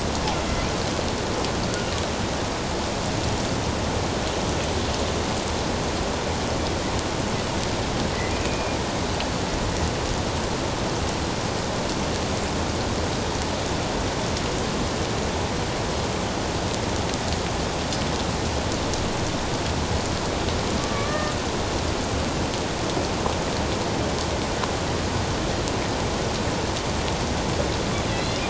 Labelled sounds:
1.7	1.9	killer whale, northern resident, A clan, AB subclan, 1.3 to 1.5 kHz
8.4	8.8	killer whale, northern resident, A clan, AB subclan, 2.3 to 2.6 kHz
20.9	21.3	killer whale, northern resident, A clan, AB subclan, 1.1 to 1.9 kHz
28.1	28.4	killer whale, northern resident, A clan, AB subclan, 3.9 to 4.2 kHz

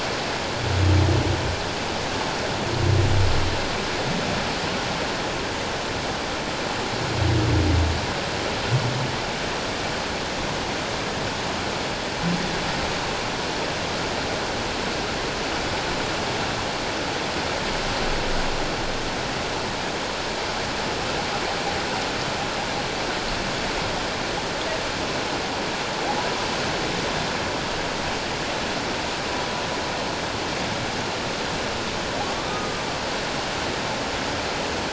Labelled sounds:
32.3	32.8	humpback whale, 1.1 to 1.3 kHz

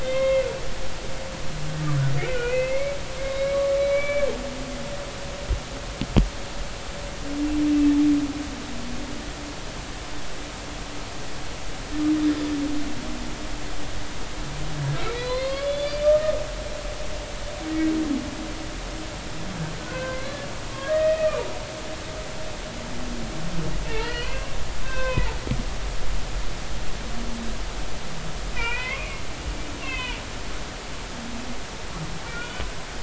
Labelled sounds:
0.0	0.5	humpback whale, 2.0 to 3.8 kHz
2.3	3.0	humpback whale, 1.4 to 2.8 kHz
3.2	4.3	humpback whale, 1.1 to 3.9 kHz
15.0	16.3	humpback whale, 0.96 to 4.8 kHz
19.8	21.4	humpback whale, 1.4 to 2.6 kHz
23.8	25.4	humpback whale, 0.83 to 3.7 kHz
28.5	29.2	humpback whale, 0.93 to 3.3 kHz
29.8	30.2	humpback whale, 0.90 to 3.6 kHz
32.4	32.6	humpback whale, 2.8 to 3.0 kHz

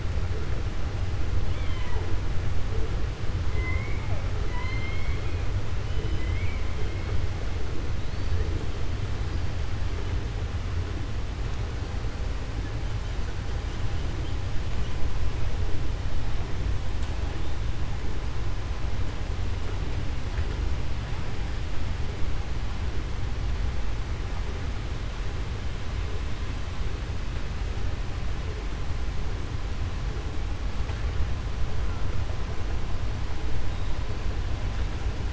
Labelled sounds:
4.4	5.4	killer whale, 0.98 to 4.2 kHz
5.9	6.6	killer whale, 2.0 to 4.0 kHz

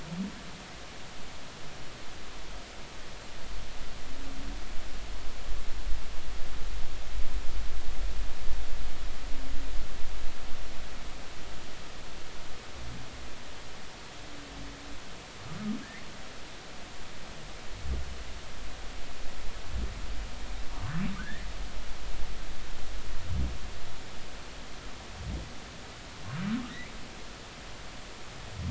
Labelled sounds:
21.2	21.5	humpback whale, 1.2 to 2.1 kHz

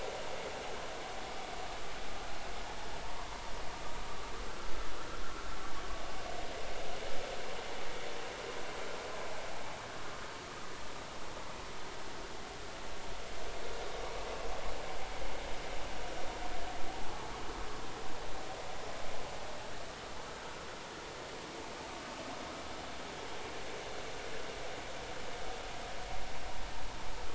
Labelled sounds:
4.5	4.7	vessel noise, 1.3 to 1.4 kHz

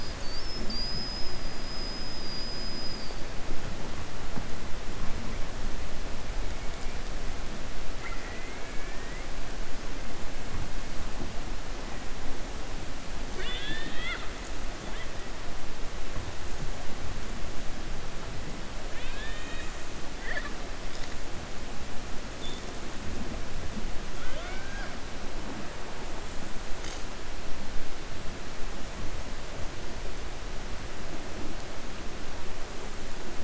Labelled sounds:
1.6	3.2	killer whale, 4.5 to 5.1 kHz
7.9	9.2	killer whale, 1.3 to 2.5 kHz
13.2	14.3	killer whale, 0.48 to 4.7 kHz
18.8	19.7	killer whale, 1.1 to 4.3 kHz
24.1	24.9	killer whale, 0.52 to 3.6 kHz

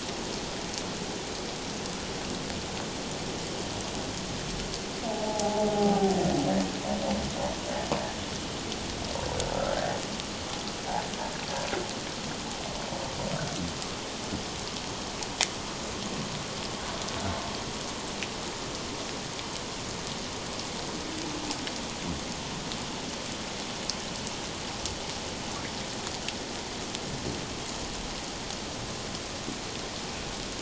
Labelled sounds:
5.0	6.2	humpback whale, 0.78 to 0.94 kHz
9.7	10.0	humpback whale, 1.5 to 1.9 kHz

